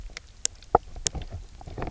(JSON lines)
{"label": "biophony, knock croak", "recorder": "SoundTrap 300"}